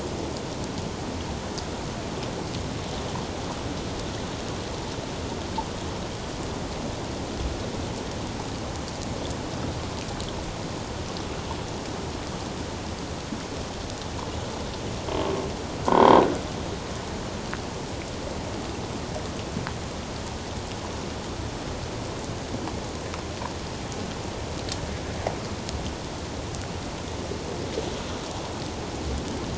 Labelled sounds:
15.9	16.2	croaking sound likely from a nearby submerged object, 0.84 to 3.3 kHz

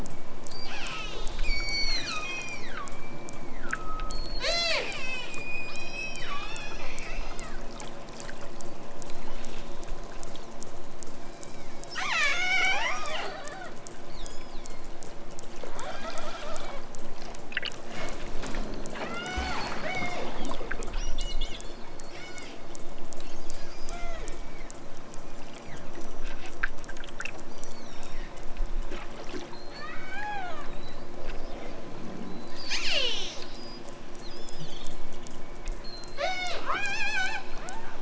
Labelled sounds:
0.0	7.7	killer whale, southern Alaska resident, 0.28 to 8.0 kHz
9.1	9.8	killer whale, southern Alaska resident, 1.0 to 4.6 kHz
11.9	13.7	killer whale, southern Alaska resident, 0.41 to 7.2 kHz
14.0	14.9	killer whale, southern Alaska resident, 2.9 to 7.5 kHz
19.0	20.5	killer whale, southern Alaska resident, 0.37 to 7.1 kHz
22.1	22.7	killer whale, southern Alaska resident, 1.2 to 8.0 kHz
23.8	24.8	killer whale, southern Alaska resident, 0.37 to 7.3 kHz
25.3	26.0	killer whale, southern Alaska resident, 1.1 to 5.1 kHz
27.4	28.4	killer whale, southern Alaska resident, 3.3 to 6.6 kHz
29.4	30.7	killer whale, southern Alaska resident, 0.46 to 8.0 kHz
32.3	33.9	killer whale, southern Alaska resident, 1.4 to 8.0 kHz
34.1	35.1	killer whale, southern Alaska resident, 2.8 to 7.3 kHz
35.8	37.9	killer whale, southern Alaska resident, 0.32 to 8.0 kHz

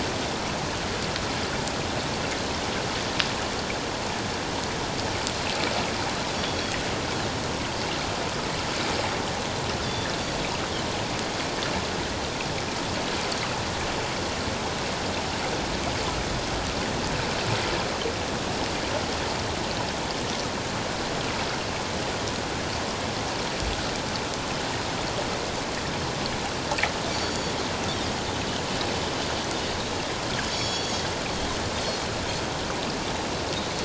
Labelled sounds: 6.3	6.8	Pacific white-sided dolphin, 3.2 to 3.5 kHz
9.8	10.1	Pacific white-sided dolphin, 3.4 to 3.8 kHz
27.1	27.5	Pacific white-sided dolphin, 4.4 to 6.9 kHz
30.5	31.0	Pacific white-sided dolphin, 3.2 to 7.1 kHz

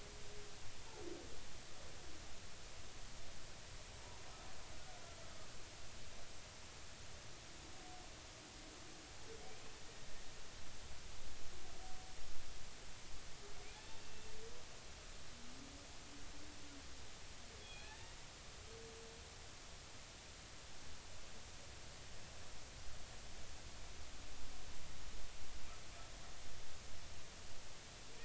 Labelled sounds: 4.7	5.0	humpback whale, 1.4 to 1.5 kHz
14.0	14.3	humpback whale, 2.6 to 2.8 kHz
17.6	17.9	humpback whale, 2.4 to 3.4 kHz

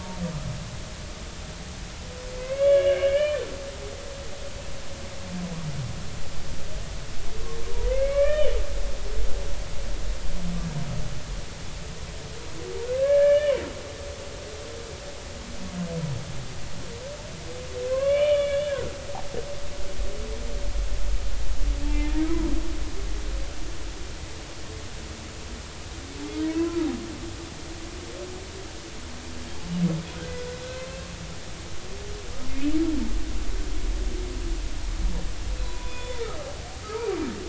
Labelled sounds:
2.4	3.4	humpback whale, 1.1 to 3.5 kHz
7.8	8.6	humpback whale, 1.0 to 3.1 kHz
13.0	13.6	humpback whale, 1.5 to 3.1 kHz
17.9	18.9	humpback whale, 0.99 to 3.6 kHz
21.8	22.5	humpback whale, 0.83 to 2.5 kHz
26.4	26.8	humpback whale, 0.93 to 2.0 kHz
32.5	32.8	humpback whale, 2.4 to 2.7 kHz
35.6	36.2	humpback whale, 0.93 to 3.6 kHz
36.8	37.1	humpback whale, 1.2 to 1.4 kHz

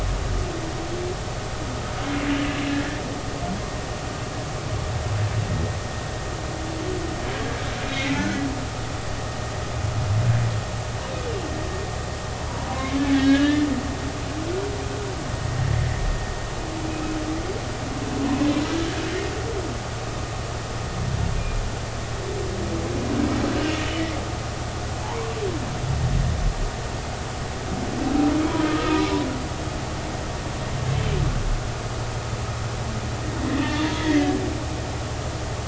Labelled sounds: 2.7	3.0	humpback whale, 1.5 to 1.9 kHz
7.8	8.2	humpback whale, 2.4 to 3.9 kHz
12.7	13.7	humpback whale, 0.93 to 3.0 kHz
16.9	17.2	humpback whale, 2.5 to 2.6 kHz
25.0	25.4	humpback whale, 0.80 to 1.2 kHz
28.7	29.0	humpback whale, 1.2 to 1.3 kHz
33.7	34.3	humpback whale, 1.8 to 3.6 kHz

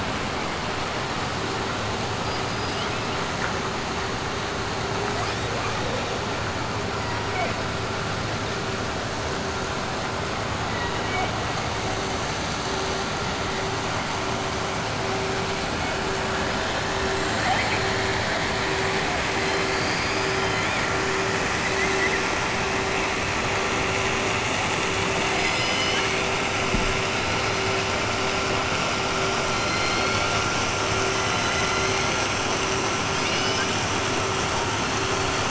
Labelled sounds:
10.7	11.3	killer whale, 0.96 to 3.8 kHz
17.3	18.0	killer whale, 0.62 to 4.6 kHz
19.4	20.8	killer whale, 2.3 to 5.3 kHz
25.2	26.2	killer whale, 1.6 to 6.0 kHz
29.5	30.3	killer whale, 2.2 to 4.6 kHz
33.1	33.7	killer whale, 1.6 to 6.0 kHz

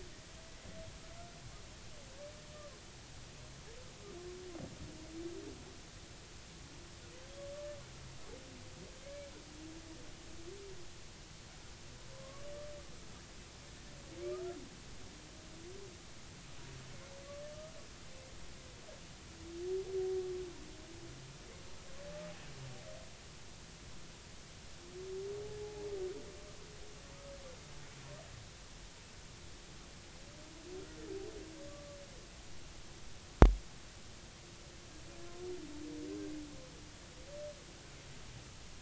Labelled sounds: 12.1	12.4	humpback whale, 0.99 to 1.2 kHz
25.6	25.9	humpback whale, 0.80 to 0.93 kHz
31.7	32.0	humpback whale, 1.1 to 1.2 kHz

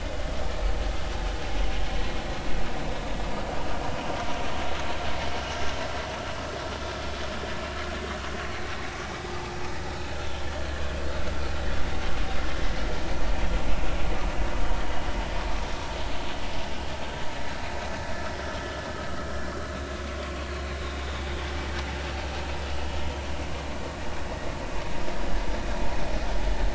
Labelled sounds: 0.0	0.3	vessel noise, 2.0 to 2.2 kHz
9.3	9.6	vessel noise, 0.80 to 0.93 kHz
20.2	20.5	vessel noise, 1.0 to 1.2 kHz
20.8	21.3	vessel noise, 3.4 to 3.8 kHz

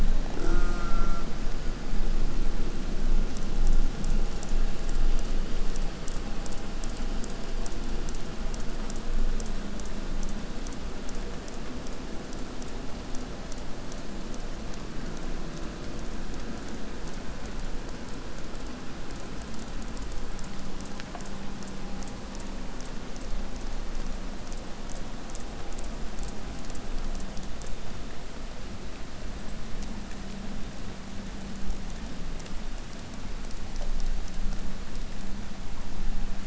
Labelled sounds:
0.2	1.3	killer whale, southern resident, J pod, call S04, 0 to 8.0 kHz

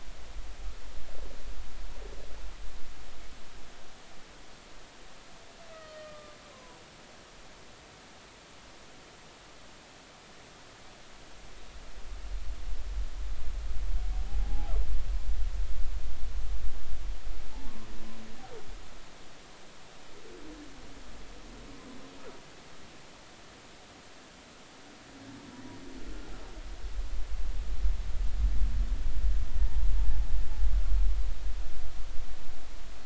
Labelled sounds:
5.7	6.8	humpback whale, 0.90 to 3.1 kHz
14.3	14.7	humpback whale, 0.80 to 0.93 kHz
29.6	29.9	humpback whale, 0.83 to 1.0 kHz

